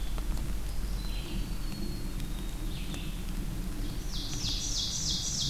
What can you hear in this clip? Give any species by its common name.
Red-eyed Vireo, Black-capped Chickadee, Ovenbird